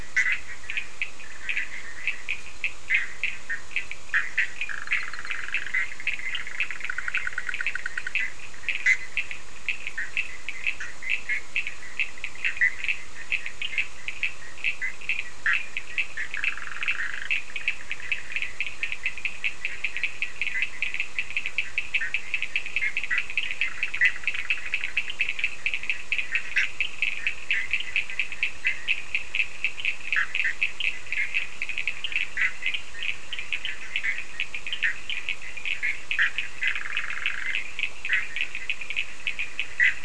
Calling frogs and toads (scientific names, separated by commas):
Sphaenorhynchus surdus, Boana bischoffi